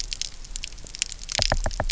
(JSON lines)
{"label": "biophony, knock", "recorder": "SoundTrap 300"}